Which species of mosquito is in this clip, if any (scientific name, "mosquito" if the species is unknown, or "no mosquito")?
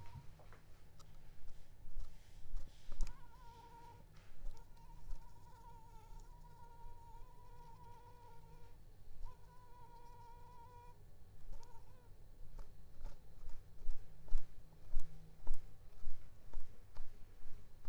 Anopheles arabiensis